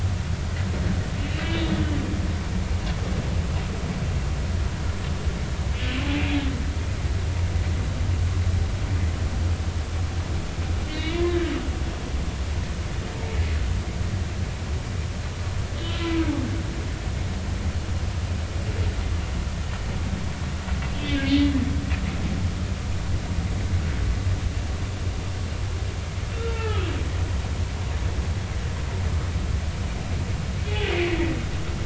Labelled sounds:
1.5	1.9	humpback whale, 3.3 to 4.0 kHz
10.9	11.5	humpback whale, 1.6 to 3.0 kHz
20.9	21.2	humpback whale, 2.8 to 3.4 kHz
26.5	26.9	humpback whale, 0.80 to 1.4 kHz
30.6	30.9	humpback whale, 3.3 to 3.5 kHz

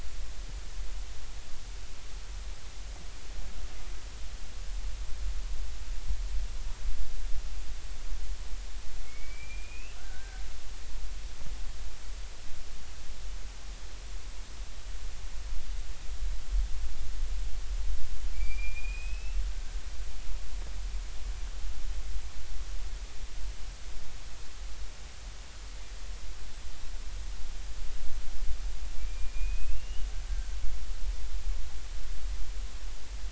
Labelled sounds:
9.1	10.4	killer whale, Bigg's (transient), 1.3 to 3.1 kHz
18.3	19.4	killer whale, Bigg's (transient), 2.2 to 5.1 kHz
29.0	30.1	killer whale, Bigg's (transient), 2.3 to 3.0 kHz

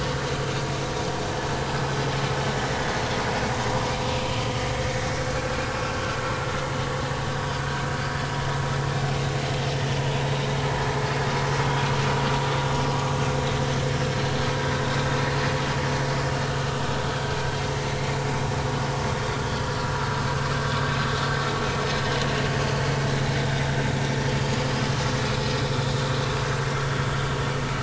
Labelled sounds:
5.4	5.6	vessel noise, 1.3 to 1.4 kHz
7.6	7.8	vessel noise, 1.4 to 1.6 kHz
22.0	22.3	vessel noise, 2.9 to 3.1 kHz
23.4	23.7	vessel noise, 3.6 to 3.9 kHz

